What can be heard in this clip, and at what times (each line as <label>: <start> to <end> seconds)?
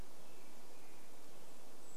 American Robin song: 0 to 2 seconds
Golden-crowned Kinglet song: 0 to 2 seconds